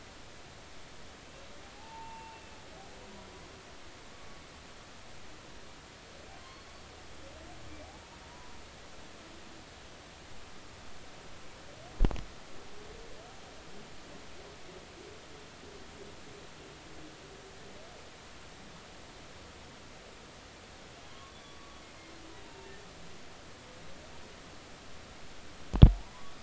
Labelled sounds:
1.7	2.6	humpback whale, 0.80 to 2.8 kHz
6.4	6.6	humpback whale, 0.99 to 1.2 kHz
8.3	8.6	humpback whale, 0.93 to 1.0 kHz
21.0	21.8	humpback whale, 0.96 to 3.5 kHz
22.4	22.7	humpback whale, 0.86 to 2.8 kHz

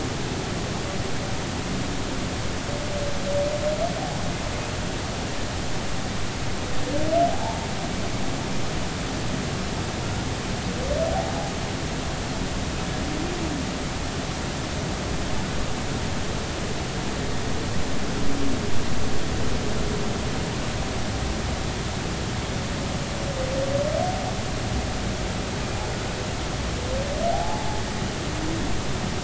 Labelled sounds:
7.3	7.6	humpback whale, 0.80 to 1.1 kHz
27.3	27.8	humpback whale, 0.80 to 0.93 kHz

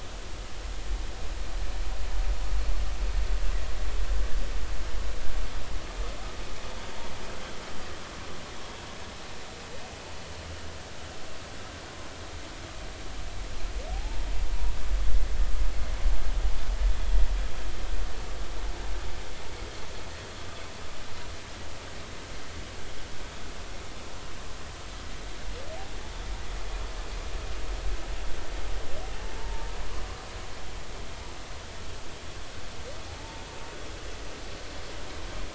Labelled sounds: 13.9	14.3	humpback whale, 0.80 to 0.96 kHz
29.4	29.7	humpback whale, 0.86 to 0.99 kHz
33.2	33.4	humpback whale, 0.83 to 0.96 kHz

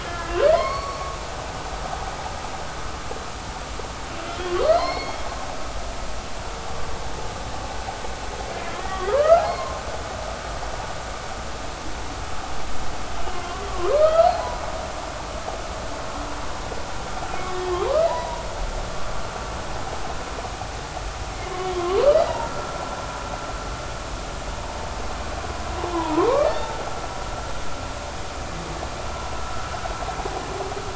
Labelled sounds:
0.0	1.2	humpback whale, 0.96 to 4.5 kHz
4.3	5.3	humpback whale, 0.90 to 4.4 kHz
8.5	9.8	humpback whale, 0.80 to 2.1 kHz
13.9	14.3	humpback whale, 1.2 to 1.4 kHz
17.7	18.4	humpback whale, 0.80 to 1.3 kHz
21.7	22.4	humpback whale, 0.99 to 2.1 kHz
25.9	26.3	humpback whale, 0.83 to 1.2 kHz

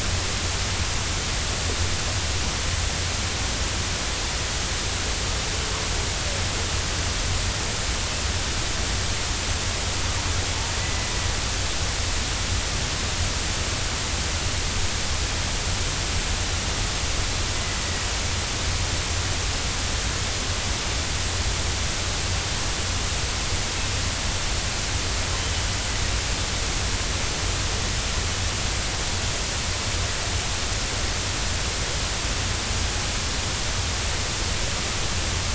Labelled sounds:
10.8	11.1	killer whale, northern resident, A clan, AB subclan, 1.9 to 2.0 kHz

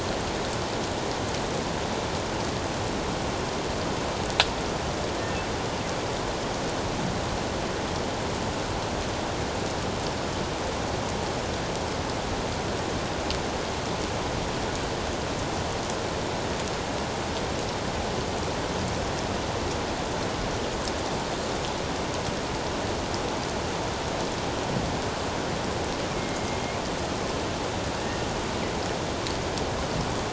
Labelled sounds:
26.2	26.6	killer whale, northern resident, A clan, AA subclan, 2.1 to 2.2 kHz
28.0	28.3	killer whale, northern resident, A clan, AA subclan, 1.8 to 1.9 kHz

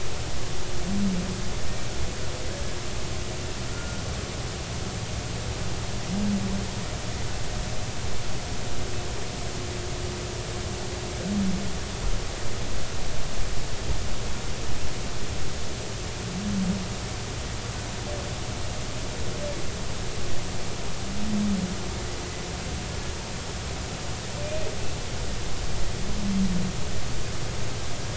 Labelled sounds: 3.7	4.0	humpback whale, 1.4 to 1.5 kHz

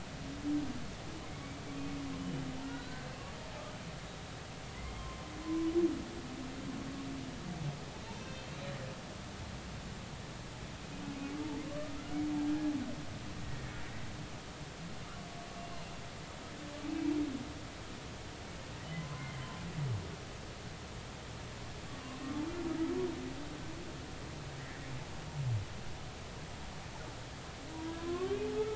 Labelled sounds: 2.7	3.1	humpback whale, 3.8 to 4.2 kHz
4.7	5.7	humpback whale, 0.96 to 2.2 kHz
8.2	8.8	humpback whale, 2.6 to 4.4 kHz
11.7	12.7	humpback whale, 1.1 to 1.7 kHz
19.0	19.3	humpback whale, 0.96 to 1.1 kHz
27.8	28.4	humpback whale, 0.96 to 1.8 kHz

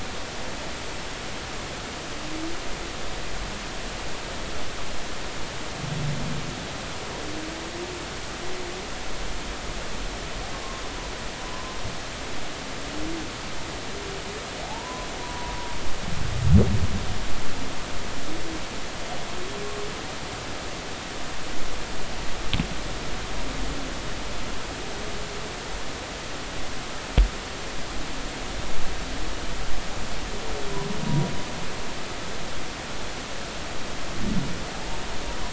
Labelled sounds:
11.5	11.8	humpback whale, 0.93 to 1.1 kHz
14.6	15.6	humpback whale, 0.80 to 1.1 kHz

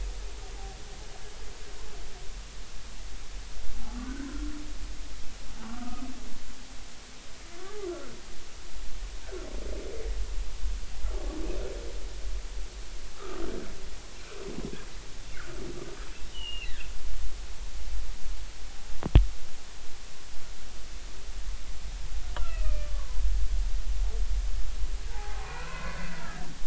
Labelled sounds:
4.0	4.6	humpback whale, 1.3 to 1.7 kHz
5.6	6.1	humpback whale, 1.1 to 1.3 kHz
7.6	8.2	humpback whale, 1.1 to 1.5 kHz
13.1	13.4	humpback whale, 1.1 to 1.4 kHz
16.3	16.7	humpback whale, 2.5 to 3.2 kHz
22.3	22.9	humpback whale, 1.2 to 3.2 kHz
25.1	26.4	humpback whale, 0.80 to 2.7 kHz

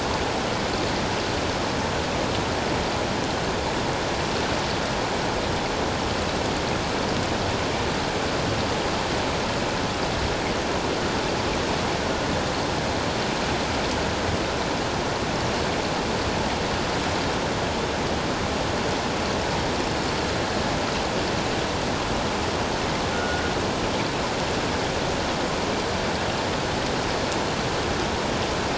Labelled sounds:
23.1	23.4	killer whale, northern resident, G clan, 1.3 to 1.6 kHz

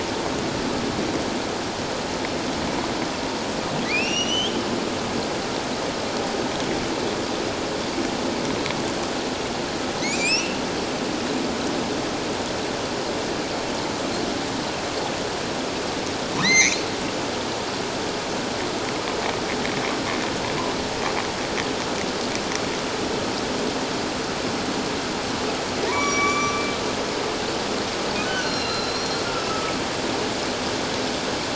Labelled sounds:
3.8	4.6	humpback whale, 1.9 to 6.4 kHz
10.0	10.6	humpback whale, 1.9 to 6.0 kHz
16.4	16.8	humpback whale, 1.7 to 6.6 kHz
25.8	26.6	humpback whale, 0.91 to 6.9 kHz
28.2	29.2	humpback whale, 1.2 to 6.1 kHz

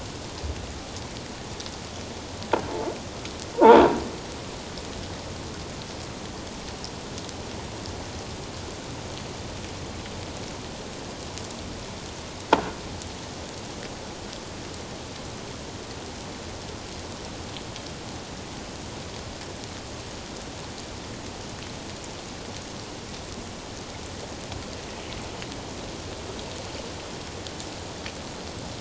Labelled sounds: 3.5	3.8	croaking sound likely from a nearby submerged object, 0.81 to 1.0 kHz

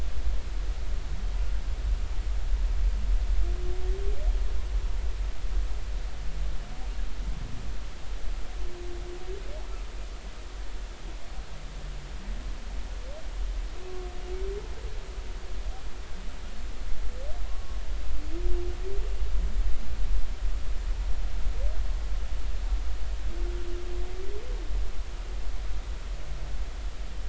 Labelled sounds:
17.4	17.8	humpback whale, 0.99 to 1.2 kHz

